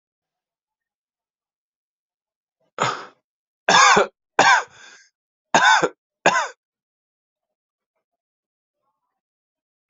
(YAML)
expert_labels:
- quality: ok
  cough_type: dry
  dyspnea: false
  wheezing: false
  stridor: false
  choking: false
  congestion: false
  nothing: true
  diagnosis: COVID-19
  severity: mild
age: 26
gender: male
respiratory_condition: false
fever_muscle_pain: false
status: healthy